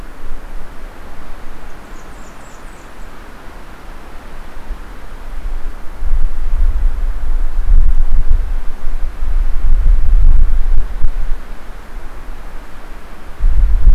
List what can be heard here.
Blackburnian Warbler